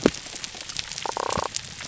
{"label": "biophony", "recorder": "SoundTrap 300"}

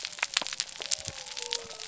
{"label": "biophony", "recorder": "SoundTrap 300"}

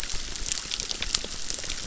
{"label": "biophony, crackle", "recorder": "SoundTrap 600"}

